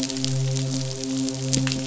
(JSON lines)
{"label": "biophony, midshipman", "recorder": "SoundTrap 500"}